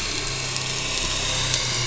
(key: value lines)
label: anthrophony, boat engine
recorder: SoundTrap 500